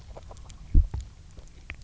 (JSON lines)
{"label": "biophony, grazing", "recorder": "SoundTrap 300"}